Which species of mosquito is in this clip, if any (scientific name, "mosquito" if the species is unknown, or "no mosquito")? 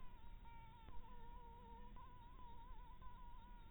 Anopheles harrisoni